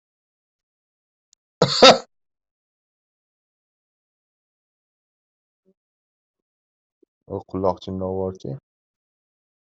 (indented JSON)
{
  "expert_labels": [
    {
      "quality": "good",
      "cough_type": "dry",
      "dyspnea": false,
      "wheezing": false,
      "stridor": false,
      "choking": false,
      "congestion": false,
      "nothing": true,
      "diagnosis": "COVID-19",
      "severity": "mild"
    }
  ],
  "age": 32,
  "gender": "female",
  "respiratory_condition": true,
  "fever_muscle_pain": true,
  "status": "healthy"
}